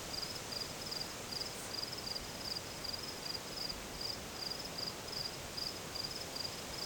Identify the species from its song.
Gryllus pennsylvanicus